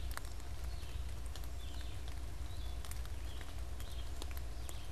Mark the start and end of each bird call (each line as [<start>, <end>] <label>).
[0.00, 4.92] Red-eyed Vireo (Vireo olivaceus)